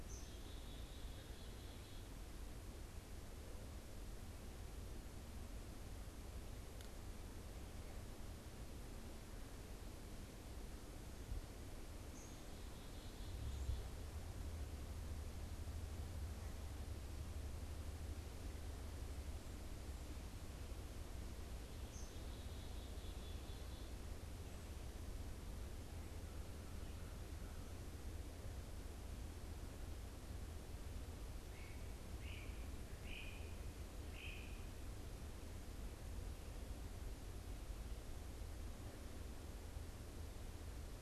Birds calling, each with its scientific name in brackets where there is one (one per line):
Great Crested Flycatcher (Myiarchus crinitus)
Black-capped Chickadee (Poecile atricapillus)